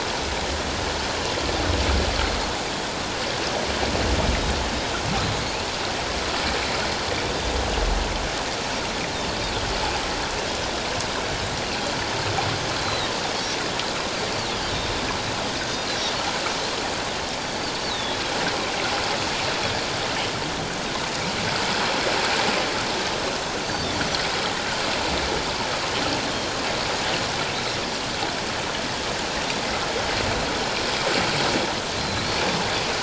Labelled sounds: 12.8	13.1	Pacific white-sided dolphin, 3.7 to 4.2 kHz
17.4	18.2	Pacific white-sided dolphin, 3.3 to 4.8 kHz
32.0	32.3	Pacific white-sided dolphin, 3.9 to 4.2 kHz

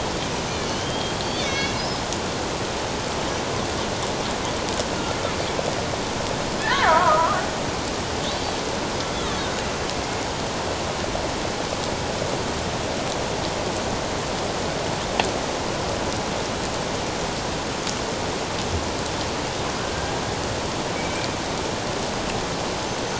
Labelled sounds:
0.7	1.8	killer whale, Bigg's (transient), 2.1 to 6.3 kHz
6.6	7.4	killer whale, Bigg's (transient), 0.91 to 2.2 kHz
19.8	20.1	killer whale, Bigg's (transient), 1.3 to 1.7 kHz
20.9	21.3	killer whale, Bigg's (transient), 2.2 to 2.5 kHz

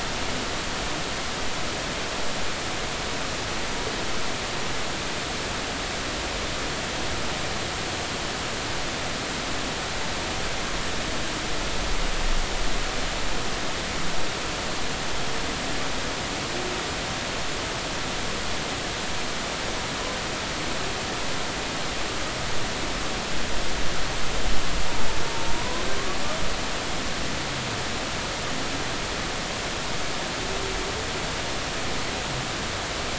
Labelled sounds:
25.5	25.8	humpback whale, 0.93 to 1.1 kHz

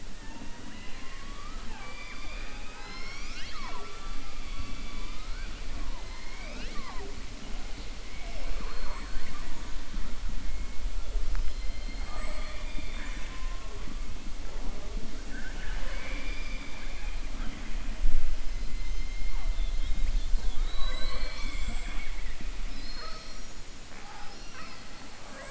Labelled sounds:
15.2	17.2	killer whale, southern resident, 0.48 to 5.1 kHz

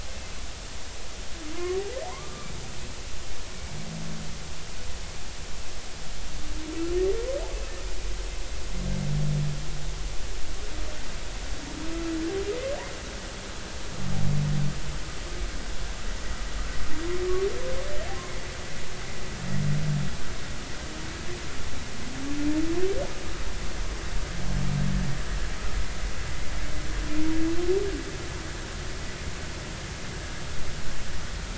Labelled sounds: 1.5	2.5	humpback whale, 0.80 to 1.3 kHz

